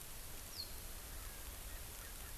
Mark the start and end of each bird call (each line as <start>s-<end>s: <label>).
1.2s-2.4s: Erckel's Francolin (Pternistis erckelii)